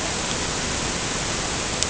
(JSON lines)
{"label": "ambient", "recorder": "HydroMoth"}